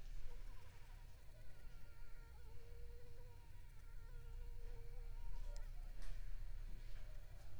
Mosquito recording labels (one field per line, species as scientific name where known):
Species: Anopheles arabiensis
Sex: female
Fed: unfed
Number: one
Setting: cup